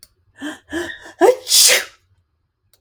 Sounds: Sneeze